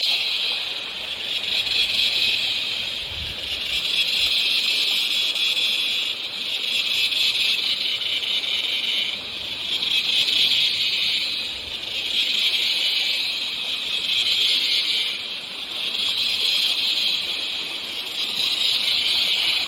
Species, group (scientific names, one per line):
Henicopsaltria eydouxii
Cicadidae